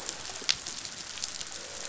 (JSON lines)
{"label": "biophony", "recorder": "SoundTrap 500"}
{"label": "biophony, croak", "recorder": "SoundTrap 500"}